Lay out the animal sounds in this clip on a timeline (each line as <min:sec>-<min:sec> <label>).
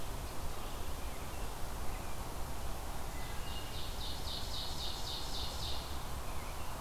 0:02.8-0:06.1 Ovenbird (Seiurus aurocapilla)
0:03.1-0:03.9 Wood Thrush (Hylocichla mustelina)